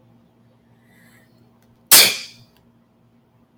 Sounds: Sneeze